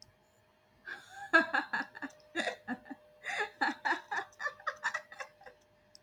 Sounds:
Laughter